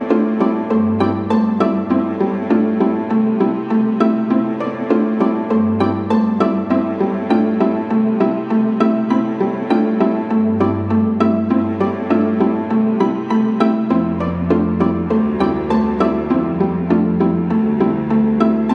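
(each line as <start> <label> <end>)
0.0 String instruments play a calming classical ambient song. 18.7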